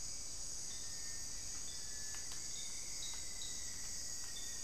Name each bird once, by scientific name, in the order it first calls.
Crypturellus cinereus, Formicarius rufifrons